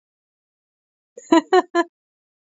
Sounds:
Laughter